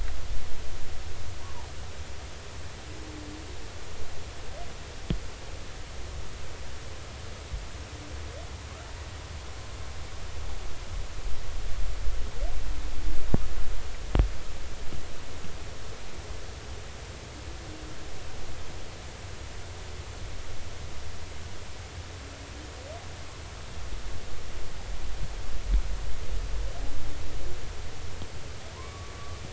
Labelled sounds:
1.4	1.7	humpback whale, 0.80 to 1.2 kHz
28.7	29.4	humpback whale, 0.90 to 1.2 kHz

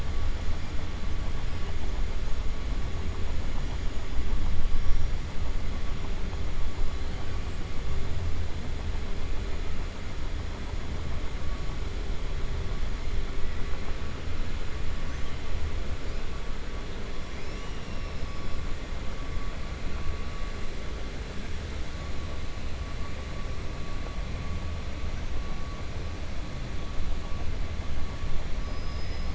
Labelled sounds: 28.6	29.3	killer whale, 4.5 to 5.2 kHz

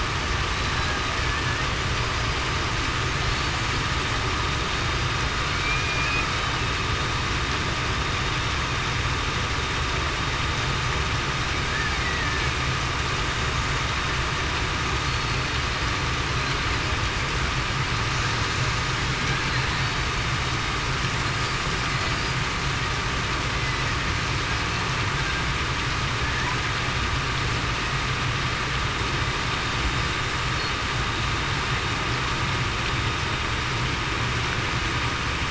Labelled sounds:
5.6	6.1	killer whale, Bigg's (transient), 2.3 to 2.5 kHz
12.0	12.5	killer whale, Bigg's (transient), 1.7 to 2.0 kHz
15.3	15.6	killer whale, Bigg's (transient), 4.3 to 4.4 kHz

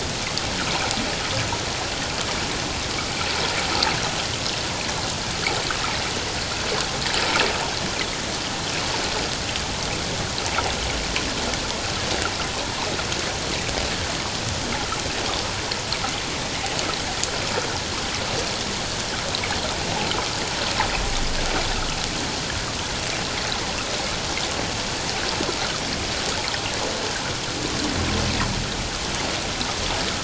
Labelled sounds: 12.6	12.9	humpback whale, 0.78 to 1.1 kHz

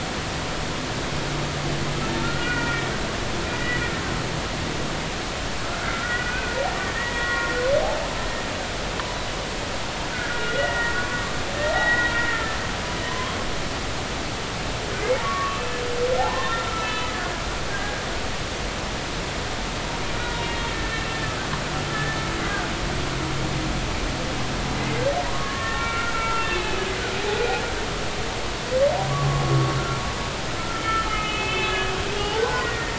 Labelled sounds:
2.2	2.9	humpback whale, 1.3 to 2.5 kHz
3.5	3.8	humpback whale, 1.9 to 2.0 kHz
5.9	6.6	humpback whale, 1.3 to 2.6 kHz
6.8	7.5	humpback whale, 1.1 to 3.4 kHz
10.1	11.2	humpback whale, 0.99 to 2.1 kHz
11.5	13.4	humpback whale, 0.80 to 3.9 kHz
15.2	15.8	humpback whale, 1.1 to 2.7 kHz
16.2	17.1	humpback whale, 0.80 to 4.0 kHz
17.7	18.0	humpback whale, 1.5 to 1.7 kHz
20.7	22.2	humpback whale, 1.6 to 2.8 kHz
22.4	22.7	humpback whale, 1.4 to 1.7 kHz
25.2	27.6	humpback whale, 0.93 to 2.8 kHz
29.1	29.7	humpback whale, 1.0 to 1.2 kHz
30.6	31.8	humpback whale, 1.2 to 3.6 kHz
32.1	32.9	humpback whale, 0.96 to 2.9 kHz

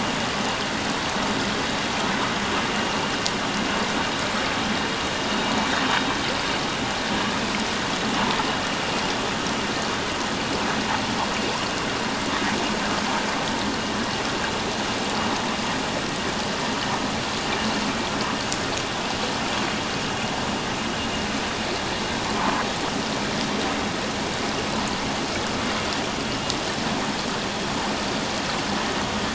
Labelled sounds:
22.4	22.6	vessel noise, 0.84 to 1.1 kHz

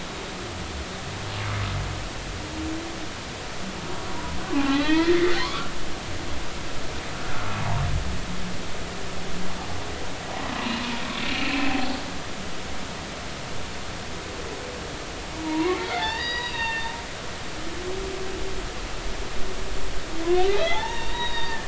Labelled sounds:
4.5	5.7	humpback whale, 0.80 to 4.1 kHz
10.6	10.8	humpback whale, 2.8 to 2.9 kHz
11.4	11.7	humpback whale, 2.3 to 2.6 kHz
15.4	16.9	humpback whale, 0.80 to 4.9 kHz
20.4	21.6	humpback whale, 0.80 to 4.7 kHz

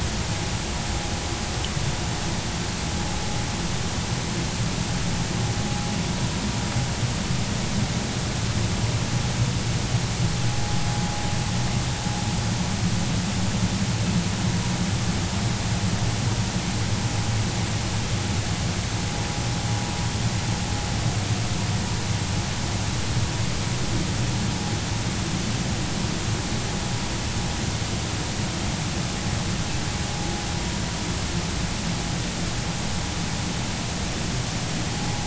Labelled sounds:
35.0	35.2	vessel noise, 0.80 to 0.90 kHz

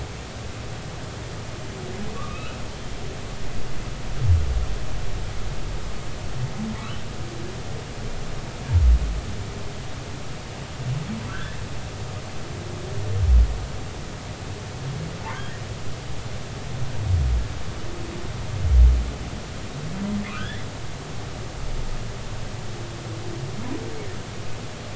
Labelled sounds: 2.1	2.6	humpback whale, 1.1 to 2.8 kHz
11.3	11.6	humpback whale, 1.3 to 1.8 kHz
15.3	15.6	humpback whale, 1.4 to 1.9 kHz
20.3	20.7	humpback whale, 1.0 to 3.6 kHz

